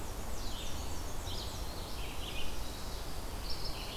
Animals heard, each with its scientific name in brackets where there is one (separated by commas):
Black-and-white Warbler (Mniotilta varia), Red-eyed Vireo (Vireo olivaceus)